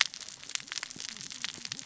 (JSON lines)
{"label": "biophony, cascading saw", "recorder": "SoundTrap 600 or HydroMoth"}